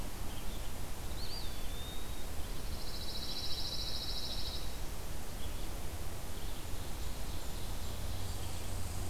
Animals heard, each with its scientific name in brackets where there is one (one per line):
Pine Warbler (Setophaga pinus)
Red Squirrel (Tamiasciurus hudsonicus)
Red-eyed Vireo (Vireo olivaceus)
Eastern Wood-Pewee (Contopus virens)
Ovenbird (Seiurus aurocapilla)
Blackburnian Warbler (Setophaga fusca)